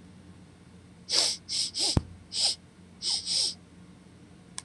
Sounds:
Sniff